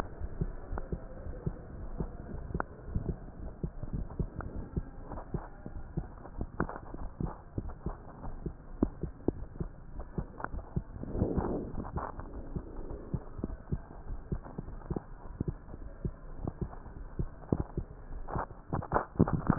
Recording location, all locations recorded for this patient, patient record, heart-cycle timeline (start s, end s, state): aortic valve (AV)
aortic valve (AV)+pulmonary valve (PV)+tricuspid valve (TV)+mitral valve (MV)
#Age: Child
#Sex: Female
#Height: 161.0 cm
#Weight: 43.8 kg
#Pregnancy status: False
#Murmur: Absent
#Murmur locations: nan
#Most audible location: nan
#Systolic murmur timing: nan
#Systolic murmur shape: nan
#Systolic murmur grading: nan
#Systolic murmur pitch: nan
#Systolic murmur quality: nan
#Diastolic murmur timing: nan
#Diastolic murmur shape: nan
#Diastolic murmur grading: nan
#Diastolic murmur pitch: nan
#Diastolic murmur quality: nan
#Outcome: Normal
#Campaign: 2015 screening campaign
0.00	0.95	unannotated
0.95	1.20	diastole
1.20	1.36	S1
1.36	1.44	systole
1.44	1.54	S2
1.54	1.80	diastole
1.80	1.90	S1
1.90	1.98	systole
1.98	2.08	S2
2.08	2.30	diastole
2.30	2.42	S1
2.42	2.48	systole
2.48	2.62	S2
2.62	2.88	diastole
2.88	2.99	S1
2.99	3.06	systole
3.06	3.20	S2
3.20	3.42	diastole
3.42	3.52	S1
3.52	3.60	systole
3.60	3.70	S2
3.70	3.92	diastole
3.92	4.08	S1
4.08	4.18	systole
4.18	4.32	S2
4.32	4.56	diastole
4.56	4.66	S1
4.66	4.74	systole
4.74	4.84	S2
4.84	5.12	diastole
5.12	5.24	S1
5.24	5.32	systole
5.32	5.44	S2
5.44	5.74	diastole
5.74	5.84	S1
5.84	5.94	systole
5.94	6.06	S2
6.06	6.36	diastole
6.36	6.48	S1
6.48	6.58	systole
6.58	6.70	S2
6.70	6.98	diastole
6.98	7.12	S1
7.12	7.20	systole
7.20	7.32	S2
7.32	7.56	diastole
7.56	7.74	S1
7.74	7.84	systole
7.84	7.96	S2
7.96	8.24	diastole
8.24	8.36	S1
8.36	8.44	systole
8.44	8.54	S2
8.54	8.80	diastole
8.80	8.94	S1
8.94	9.02	systole
9.02	9.14	S2
9.14	9.37	diastole
9.37	9.50	S1
9.50	9.59	systole
9.59	9.74	S2
9.74	9.96	diastole
9.96	10.06	S1
10.06	10.14	systole
10.14	10.26	S2
10.26	10.52	diastole
10.52	10.64	S1
10.64	10.72	systole
10.72	10.84	S2
10.84	11.12	diastole
11.12	19.58	unannotated